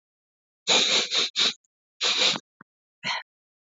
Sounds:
Sniff